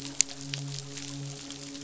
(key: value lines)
label: biophony, midshipman
recorder: SoundTrap 500